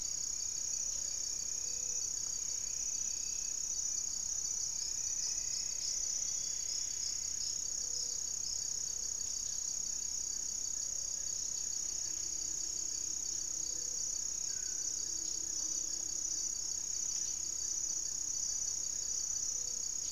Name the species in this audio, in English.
Gray-fronted Dove, Amazonian Trogon, Plumbeous Antbird